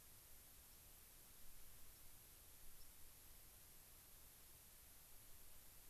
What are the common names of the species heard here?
White-crowned Sparrow